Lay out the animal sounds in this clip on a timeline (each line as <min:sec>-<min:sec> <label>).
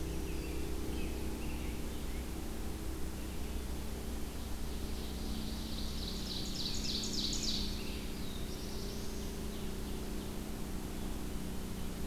0:00.0-0:02.3 American Robin (Turdus migratorius)
0:04.7-0:07.9 Ovenbird (Seiurus aurocapilla)
0:06.6-0:08.1 American Robin (Turdus migratorius)
0:07.8-0:09.2 Black-throated Blue Warbler (Setophaga caerulescens)
0:08.5-0:10.4 Ovenbird (Seiurus aurocapilla)